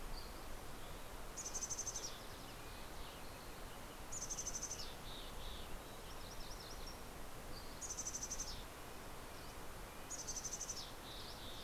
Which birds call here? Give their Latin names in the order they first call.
Empidonax oberholseri, Sitta canadensis, Poecile gambeli, Geothlypis tolmiei